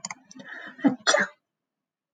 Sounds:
Sneeze